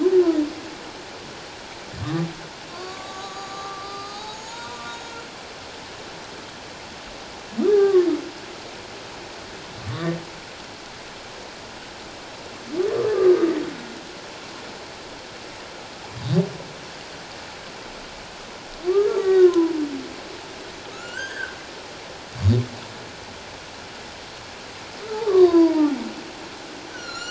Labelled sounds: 2.0	5.1	humpback whale, 0.78 to 7.1 kHz
7.6	8.1	humpback whale, 1.0 to 1.8 kHz
9.9	10.2	humpback whale, 1.1 to 2.1 kHz
13.1	13.5	humpback whale, 1.1 to 1.3 kHz
19.1	19.7	humpback whale, 0.94 to 2.0 kHz
20.9	21.6	humpback whale, 1.2 to 3.2 kHz
25.3	26.0	humpback whale, 0.78 to 1.2 kHz

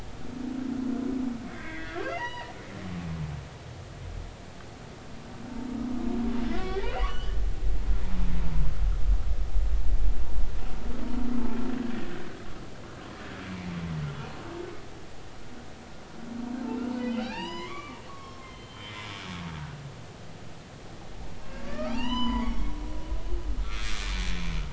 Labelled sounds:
1.5	2.5	humpback whale, 0.86 to 4.9 kHz
6.5	7.4	humpback whale, 0.99 to 3.3 kHz
17.0	19.2	humpback whale, 0.80 to 6.0 kHz
21.6	22.7	humpback whale, 0.80 to 6.1 kHz
23.7	23.9	humpback whale, 2.2 to 2.4 kHz

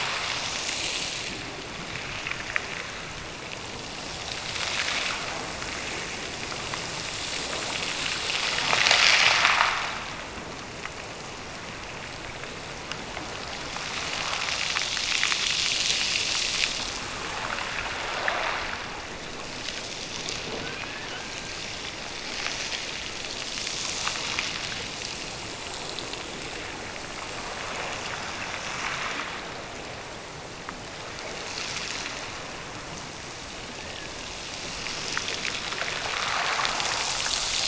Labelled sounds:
20.6	21.8	killer whale, Bigg's (transient), Gulf of Alaska transient, 1.3 to 2.7 kHz
33.7	34.3	killer whale, Bigg's (transient), Gulf of Alaska transient, 1.5 to 2.0 kHz

